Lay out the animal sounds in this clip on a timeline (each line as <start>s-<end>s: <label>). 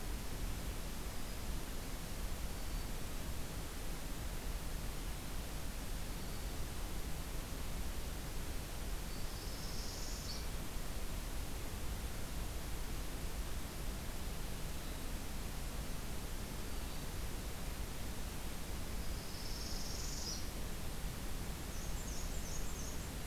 9.0s-10.5s: Northern Parula (Setophaga americana)
18.9s-20.5s: Northern Parula (Setophaga americana)
21.6s-23.3s: Black-and-white Warbler (Mniotilta varia)